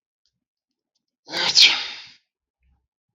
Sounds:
Sneeze